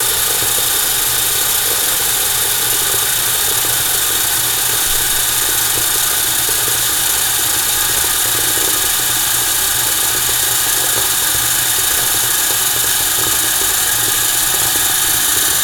Does the sound pause at all?
no